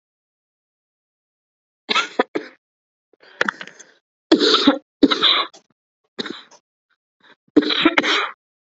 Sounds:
Cough